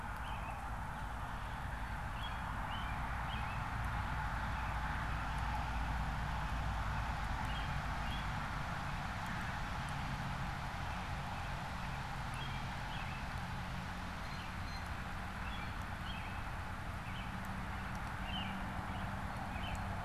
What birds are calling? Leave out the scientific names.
American Robin, Blue Jay